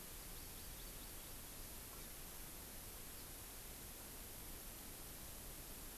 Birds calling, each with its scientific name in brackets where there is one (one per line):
Hawaii Amakihi (Chlorodrepanis virens)